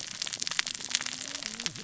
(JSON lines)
{"label": "biophony, cascading saw", "recorder": "SoundTrap 600 or HydroMoth"}